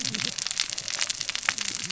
{"label": "biophony, cascading saw", "recorder": "SoundTrap 600 or HydroMoth"}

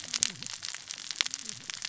{"label": "biophony, cascading saw", "recorder": "SoundTrap 600 or HydroMoth"}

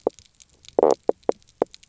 {"label": "biophony, knock croak", "recorder": "SoundTrap 300"}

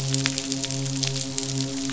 {"label": "biophony, midshipman", "recorder": "SoundTrap 500"}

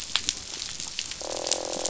{"label": "biophony, croak", "recorder": "SoundTrap 500"}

